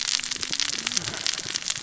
{"label": "biophony, cascading saw", "recorder": "SoundTrap 600 or HydroMoth"}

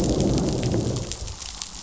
{"label": "biophony, growl", "recorder": "SoundTrap 500"}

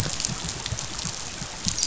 {"label": "biophony, dolphin", "recorder": "SoundTrap 500"}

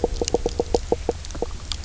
{"label": "biophony, knock croak", "recorder": "SoundTrap 300"}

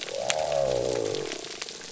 {"label": "biophony", "recorder": "SoundTrap 300"}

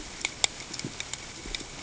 {"label": "ambient", "recorder": "HydroMoth"}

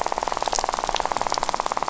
{"label": "biophony, rattle", "recorder": "SoundTrap 500"}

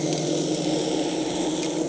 {"label": "anthrophony, boat engine", "recorder": "HydroMoth"}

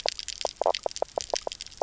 {"label": "biophony, knock croak", "recorder": "SoundTrap 300"}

